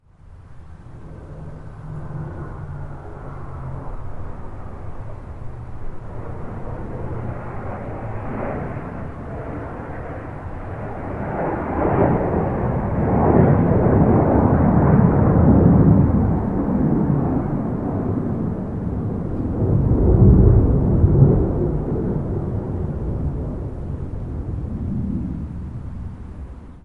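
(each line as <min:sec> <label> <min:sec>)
0:00.0 An aircraft produces a deep whooshing sound that gradually becomes louder as it approaches and fades as it moves away. 0:26.8
0:00.0 Soft, continuous static white noise hisses in the background. 0:26.8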